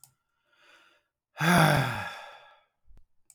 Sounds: Sigh